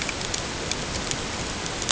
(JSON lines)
{"label": "ambient", "recorder": "HydroMoth"}